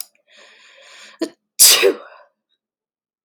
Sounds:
Sneeze